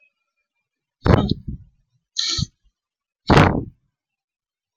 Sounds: Sneeze